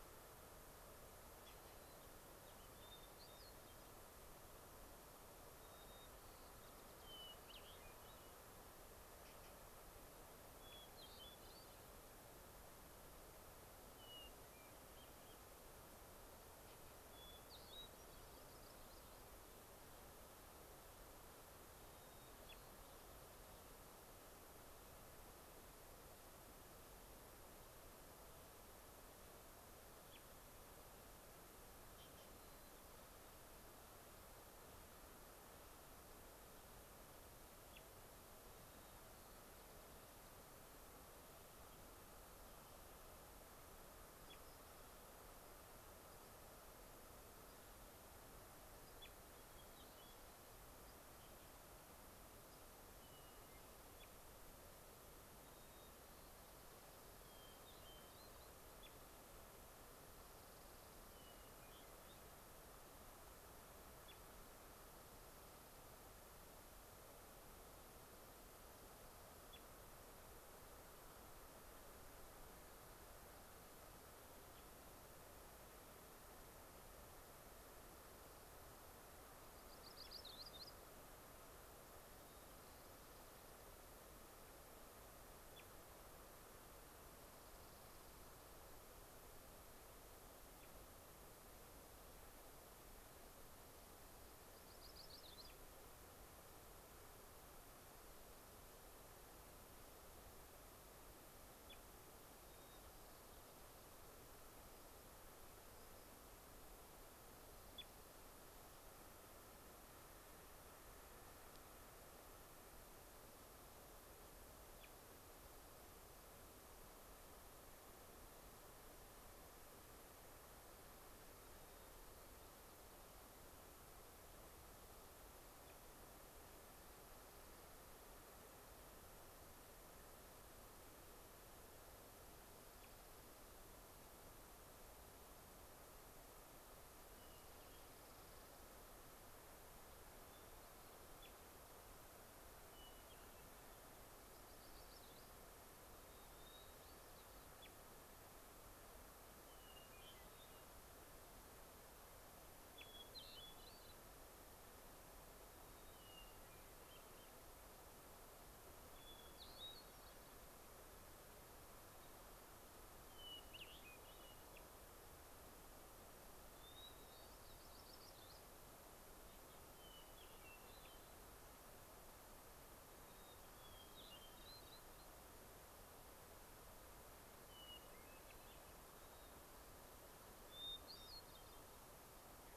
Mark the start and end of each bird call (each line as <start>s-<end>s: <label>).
1.5s-2.7s: White-crowned Sparrow (Zonotrichia leucophrys)
2.7s-3.9s: Hermit Thrush (Catharus guttatus)
5.6s-7.3s: White-crowned Sparrow (Zonotrichia leucophrys)
7.0s-8.4s: Hermit Thrush (Catharus guttatus)
10.6s-11.9s: Hermit Thrush (Catharus guttatus)
13.9s-15.4s: Hermit Thrush (Catharus guttatus)
17.1s-18.5s: Hermit Thrush (Catharus guttatus)
18.3s-19.3s: unidentified bird
21.8s-23.2s: White-crowned Sparrow (Zonotrichia leucophrys)
32.3s-33.4s: White-crowned Sparrow (Zonotrichia leucophrys)
38.5s-40.0s: White-crowned Sparrow (Zonotrichia leucophrys)
44.2s-44.9s: unidentified bird
47.4s-47.6s: unidentified bird
48.8s-48.9s: unidentified bird
49.3s-50.4s: Hermit Thrush (Catharus guttatus)
50.8s-51.0s: unidentified bird
52.5s-52.6s: unidentified bird
52.9s-53.9s: Hermit Thrush (Catharus guttatus)
55.5s-56.8s: White-crowned Sparrow (Zonotrichia leucophrys)
57.2s-58.5s: Hermit Thrush (Catharus guttatus)
60.2s-61.5s: Orange-crowned Warbler (Leiothlypis celata)
61.1s-62.2s: Hermit Thrush (Catharus guttatus)
64.7s-65.8s: Orange-crowned Warbler (Leiothlypis celata)
79.5s-80.8s: Yellow-rumped Warbler (Setophaga coronata)
82.4s-83.5s: Orange-crowned Warbler (Leiothlypis celata)
87.3s-88.3s: Orange-crowned Warbler (Leiothlypis celata)
94.5s-95.6s: Yellow-rumped Warbler (Setophaga coronata)
102.4s-103.8s: White-crowned Sparrow (Zonotrichia leucophrys)
105.7s-106.1s: unidentified bird
121.4s-122.9s: White-crowned Sparrow (Zonotrichia leucophrys)
127.1s-128.0s: Orange-crowned Warbler (Leiothlypis celata)
132.5s-133.4s: Orange-crowned Warbler (Leiothlypis celata)
137.2s-137.9s: Hermit Thrush (Catharus guttatus)
137.2s-138.7s: Orange-crowned Warbler (Leiothlypis celata)
140.2s-141.1s: Hermit Thrush (Catharus guttatus)
142.7s-143.9s: Hermit Thrush (Catharus guttatus)
144.3s-145.4s: Yellow-rumped Warbler (Setophaga coronata)
146.0s-147.5s: Hermit Thrush (Catharus guttatus)
149.4s-150.7s: Hermit Thrush (Catharus guttatus)
152.8s-154.0s: Hermit Thrush (Catharus guttatus)
155.5s-157.3s: Hermit Thrush (Catharus guttatus)
158.9s-160.4s: Hermit Thrush (Catharus guttatus)
163.1s-164.4s: Hermit Thrush (Catharus guttatus)
164.5s-164.6s: unidentified bird
166.6s-167.3s: Hermit Thrush (Catharus guttatus)
167.3s-168.4s: Yellow-rumped Warbler (Setophaga coronata)
169.7s-171.2s: Hermit Thrush (Catharus guttatus)
172.9s-175.1s: Hermit Thrush (Catharus guttatus)
177.4s-179.4s: Hermit Thrush (Catharus guttatus)
180.5s-181.8s: Hermit Thrush (Catharus guttatus)